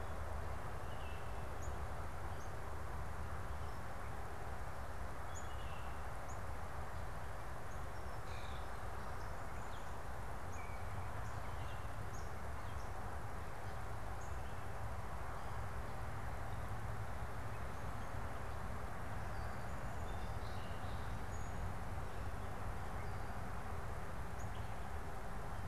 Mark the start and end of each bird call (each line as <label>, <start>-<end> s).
Baltimore Oriole (Icterus galbula), 0.0-1.6 s
Northern Cardinal (Cardinalis cardinalis), 0.0-5.6 s
Baltimore Oriole (Icterus galbula), 5.1-6.1 s
Common Grackle (Quiscalus quiscula), 8.1-8.8 s
Baltimore Oriole (Icterus galbula), 10.3-12.3 s
Song Sparrow (Melospiza melodia), 19.3-22.0 s